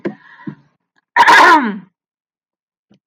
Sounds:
Throat clearing